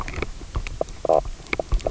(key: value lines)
label: biophony, knock croak
recorder: SoundTrap 300